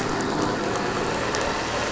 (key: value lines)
label: anthrophony, boat engine
recorder: SoundTrap 500